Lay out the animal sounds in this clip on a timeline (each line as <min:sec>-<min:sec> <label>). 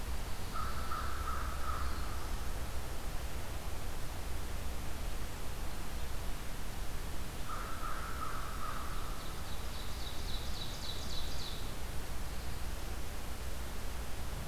0:00.0-0:01.3 Pine Warbler (Setophaga pinus)
0:00.2-0:02.5 American Crow (Corvus brachyrhynchos)
0:01.5-0:02.4 Black-throated Blue Warbler (Setophaga caerulescens)
0:07.3-0:09.3 American Crow (Corvus brachyrhynchos)
0:08.5-0:11.7 Ovenbird (Seiurus aurocapilla)